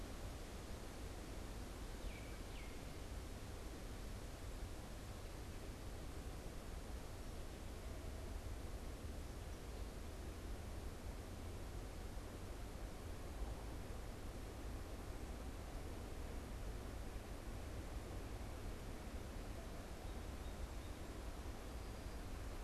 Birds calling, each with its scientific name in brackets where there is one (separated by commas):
Baltimore Oriole (Icterus galbula)